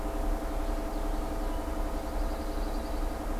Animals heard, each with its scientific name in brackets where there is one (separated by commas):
Common Yellowthroat (Geothlypis trichas), Pine Warbler (Setophaga pinus)